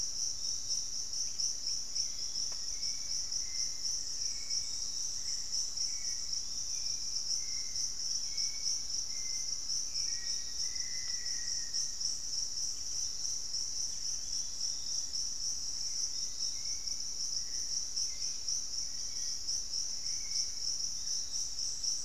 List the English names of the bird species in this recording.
Hauxwell's Thrush, Piratic Flycatcher, unidentified bird, Black-faced Antthrush